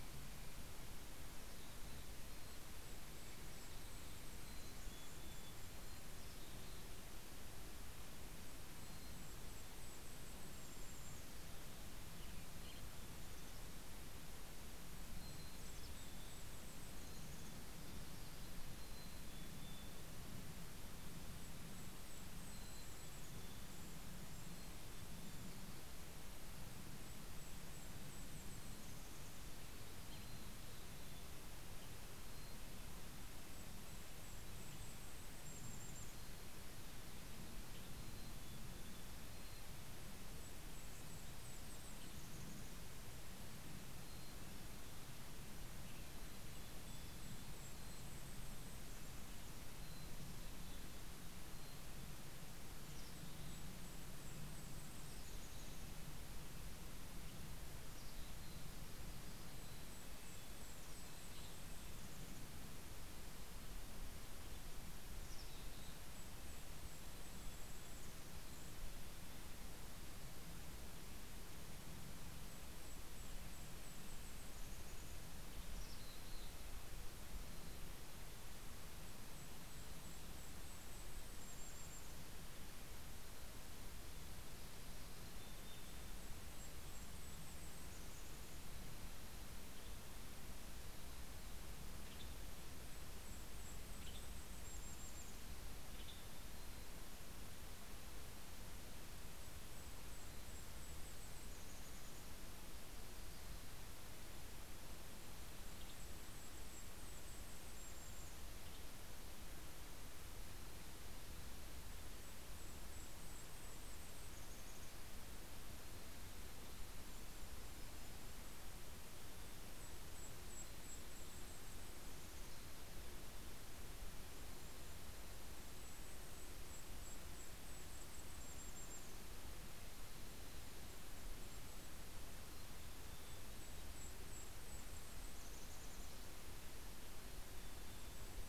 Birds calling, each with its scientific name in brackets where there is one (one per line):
Western Tanager (Piranga ludoviciana)
Red-breasted Nuthatch (Sitta canadensis)
Golden-crowned Kinglet (Regulus satrapa)
Mountain Chickadee (Poecile gambeli)